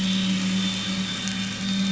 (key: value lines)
label: anthrophony, boat engine
recorder: SoundTrap 500